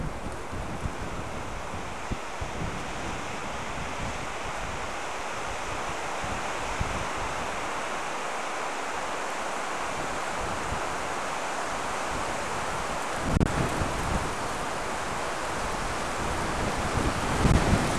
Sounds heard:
forest ambience